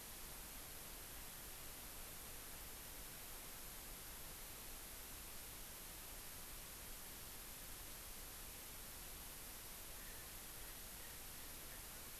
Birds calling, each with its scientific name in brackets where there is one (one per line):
Erckel's Francolin (Pternistis erckelii)